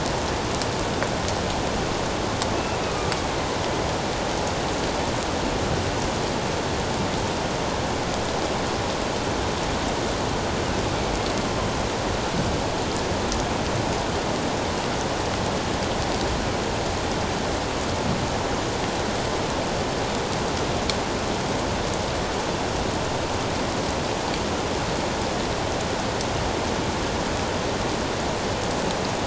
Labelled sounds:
2.9	3.1	killer whale, northern resident, A clan, AA subclan, 1.2 to 1.3 kHz

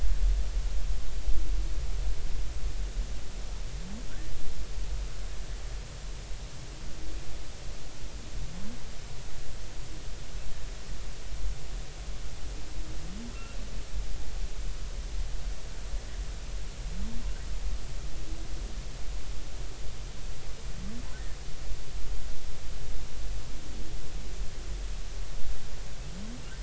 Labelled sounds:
13.3	13.7	humpback whale, 2.5 to 2.8 kHz

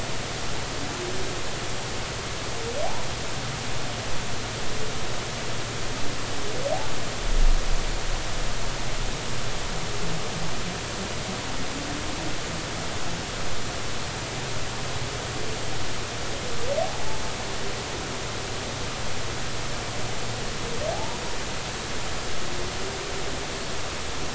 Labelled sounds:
16.8	17.2	humpback whale, 0.80 to 0.93 kHz
20.9	21.2	humpback whale, 0.80 to 1.0 kHz

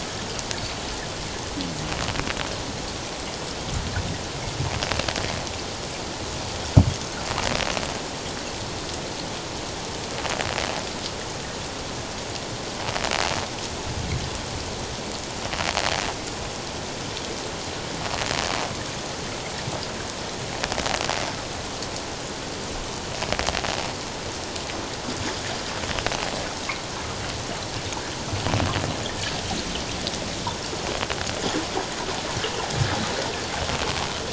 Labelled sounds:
0.6	0.8	click-like sound, 4.3 to 4.7 kHz

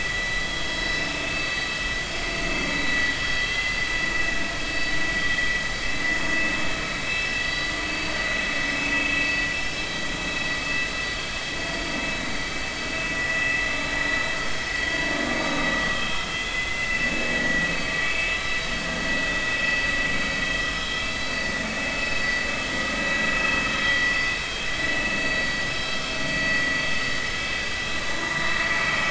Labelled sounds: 0.7	1.7	vessel noise, 4.4 to 5.3 kHz
2.7	3.9	vessel noise, 1.9 to 4.7 kHz
7.1	7.3	vessel noise, 2.6 to 2.7 kHz
13.3	13.7	vessel noise, 1.8 to 2.2 kHz
15.4	16.0	vessel noise, 1.1 to 3.9 kHz
16.4	17.7	vessel noise, 1.8 to 3.5 kHz
21.0	21.3	vessel noise, 3.9 to 4.8 kHz
24.0	24.4	vessel noise, 4.6 to 5.6 kHz
25.2	25.9	vessel noise, 4.5 to 5.3 kHz
27.4	28.4	vessel noise, 0.86 to 3.6 kHz

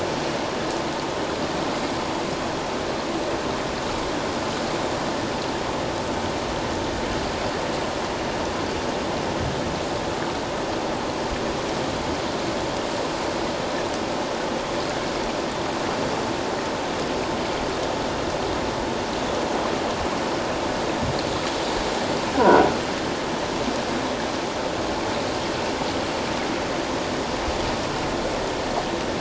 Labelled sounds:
22.4	22.7	croaking sound likely from a nearby submerged object, 1.3 to 1.6 kHz

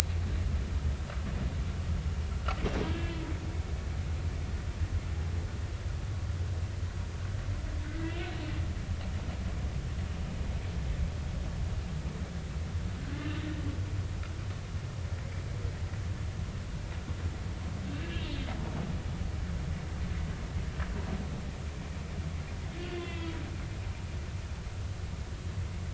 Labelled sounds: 2.8	3.2	humpback whale, 1.6 to 3.1 kHz
7.8	8.2	humpback whale, 1.4 to 2.1 kHz
13.2	13.5	humpback whale, 3.8 to 4.0 kHz
17.9	18.2	humpback whale, 2.6 to 2.8 kHz
22.9	23.4	humpback whale, 2.0 to 3.5 kHz

